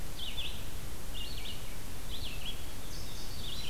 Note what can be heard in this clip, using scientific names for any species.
Vireo olivaceus, Passerina cyanea